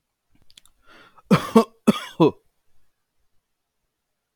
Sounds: Cough